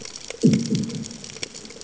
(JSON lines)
{"label": "anthrophony, bomb", "recorder": "HydroMoth"}